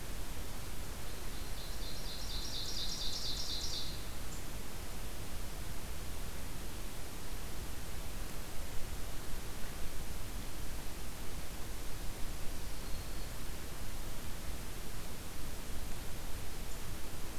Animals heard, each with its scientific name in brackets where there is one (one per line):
Ovenbird (Seiurus aurocapilla)
Black-throated Green Warbler (Setophaga virens)